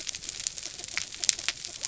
{"label": "biophony", "recorder": "SoundTrap 300"}
{"label": "anthrophony, mechanical", "recorder": "SoundTrap 300"}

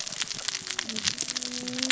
{"label": "biophony, cascading saw", "recorder": "SoundTrap 600 or HydroMoth"}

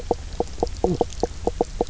{"label": "biophony, knock croak", "recorder": "SoundTrap 300"}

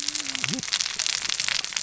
{"label": "biophony, cascading saw", "recorder": "SoundTrap 600 or HydroMoth"}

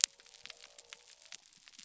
{"label": "biophony", "recorder": "SoundTrap 300"}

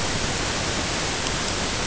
{"label": "ambient", "recorder": "HydroMoth"}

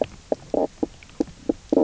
{"label": "biophony, knock croak", "recorder": "SoundTrap 300"}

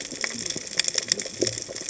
{"label": "biophony, cascading saw", "recorder": "HydroMoth"}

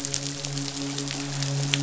{"label": "biophony, midshipman", "recorder": "SoundTrap 500"}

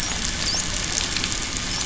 {"label": "biophony, dolphin", "recorder": "SoundTrap 500"}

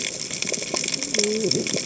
{"label": "biophony, cascading saw", "recorder": "HydroMoth"}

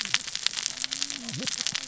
{"label": "biophony, cascading saw", "recorder": "SoundTrap 600 or HydroMoth"}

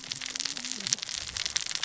{"label": "biophony, cascading saw", "recorder": "SoundTrap 600 or HydroMoth"}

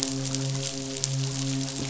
{"label": "biophony, midshipman", "recorder": "SoundTrap 500"}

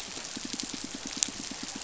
{"label": "biophony, pulse", "recorder": "SoundTrap 500"}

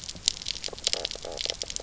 {"label": "biophony, knock croak", "recorder": "SoundTrap 300"}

